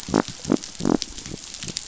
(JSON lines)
{"label": "biophony", "recorder": "SoundTrap 500"}